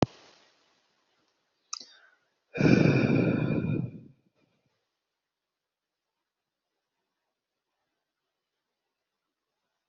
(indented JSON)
{
  "expert_labels": [
    {
      "quality": "no cough present",
      "cough_type": "unknown",
      "dyspnea": false,
      "wheezing": false,
      "stridor": false,
      "choking": false,
      "congestion": false,
      "nothing": true,
      "diagnosis": "healthy cough",
      "severity": "unknown"
    }
  ]
}